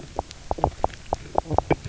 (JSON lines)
{"label": "biophony, knock croak", "recorder": "SoundTrap 300"}